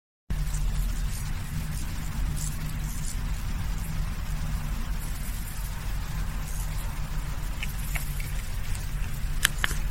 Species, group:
Chorthippus brunneus
Orthoptera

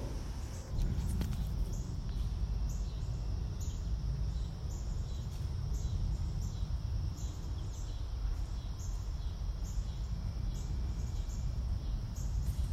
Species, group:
Neotibicen pruinosus
Cicadidae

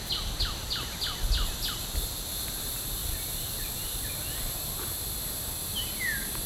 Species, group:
Neocicada hieroglyphica
Cicadidae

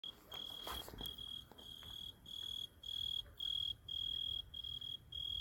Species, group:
Oecanthus pellucens
Orthoptera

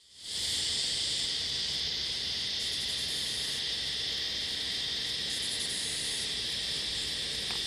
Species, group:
Pauropsalta mneme
Cicadidae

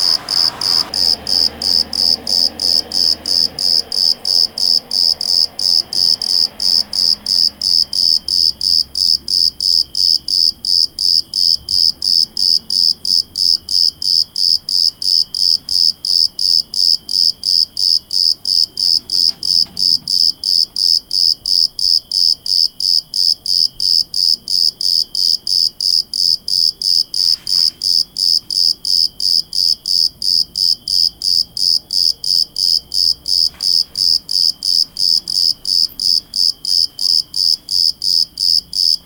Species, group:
Eumodicogryllus bordigalensis
Orthoptera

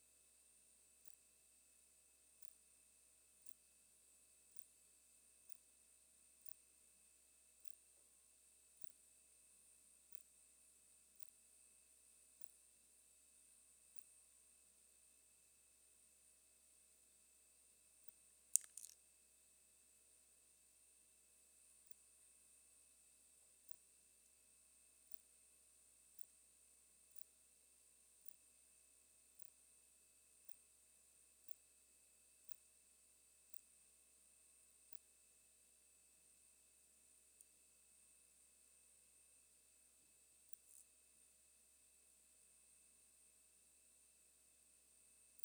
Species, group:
Poecilimon ikariensis
Orthoptera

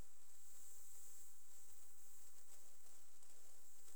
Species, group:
Leptophyes punctatissima
Orthoptera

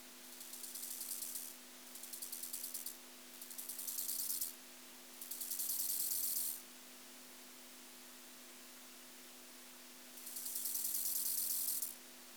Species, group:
Chorthippus biguttulus
Orthoptera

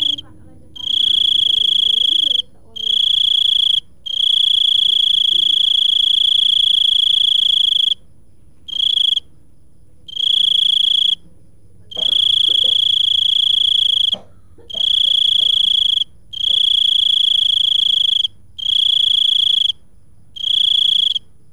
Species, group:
Teleogryllus mitratus
Orthoptera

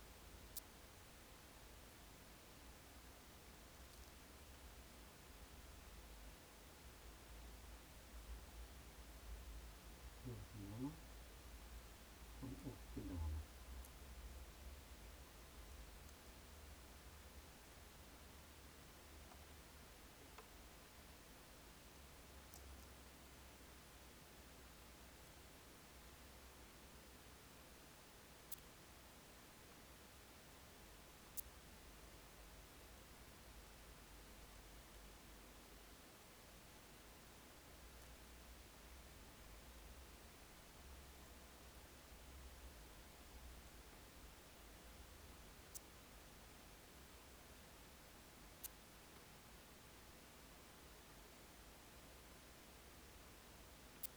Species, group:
Yersinella raymondii
Orthoptera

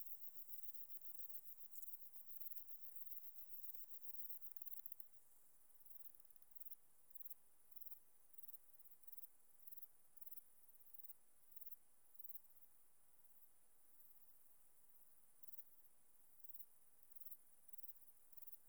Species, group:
Platycleis affinis
Orthoptera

